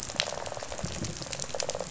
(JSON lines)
{"label": "biophony, rattle response", "recorder": "SoundTrap 500"}